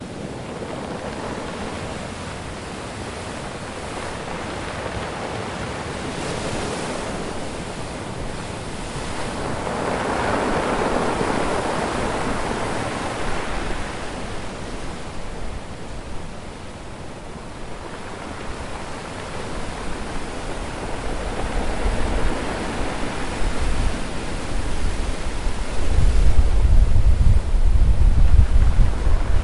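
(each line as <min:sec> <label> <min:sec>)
0:09.2 The sound is similar to waves but not very clear. 0:29.4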